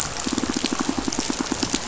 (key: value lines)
label: biophony, pulse
recorder: SoundTrap 500